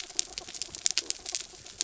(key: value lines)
label: anthrophony, mechanical
recorder: SoundTrap 300